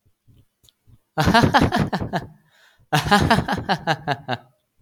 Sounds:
Laughter